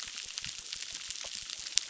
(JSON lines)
{"label": "biophony, crackle", "recorder": "SoundTrap 600"}